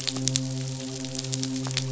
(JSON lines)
{"label": "biophony, midshipman", "recorder": "SoundTrap 500"}